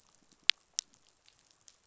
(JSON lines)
{"label": "biophony, pulse", "recorder": "SoundTrap 500"}